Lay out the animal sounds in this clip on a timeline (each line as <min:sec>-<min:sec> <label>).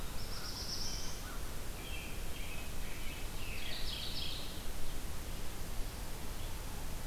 0:00.0-0:01.4 Black-throated Blue Warbler (Setophaga caerulescens)
0:00.0-0:02.2 American Crow (Corvus brachyrhynchos)
0:01.6-0:03.8 American Robin (Turdus migratorius)
0:03.2-0:04.6 Mourning Warbler (Geothlypis philadelphia)